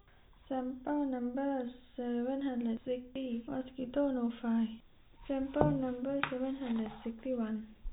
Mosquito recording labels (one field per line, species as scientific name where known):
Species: no mosquito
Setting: cup